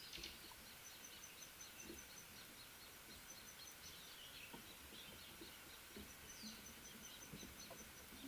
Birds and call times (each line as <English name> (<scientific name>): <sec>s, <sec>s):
Bronze Sunbird (Nectarinia kilimensis): 2.1s